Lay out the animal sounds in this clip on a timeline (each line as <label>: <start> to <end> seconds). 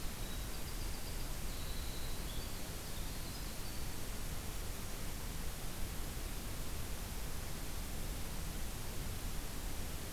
Winter Wren (Troglodytes hiemalis): 0.0 to 4.0 seconds